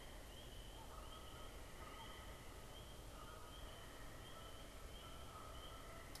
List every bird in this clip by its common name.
Canada Goose